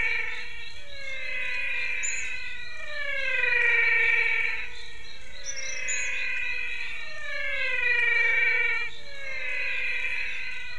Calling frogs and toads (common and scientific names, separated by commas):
Adenomera diptyx, menwig frog (Physalaemus albonotatus)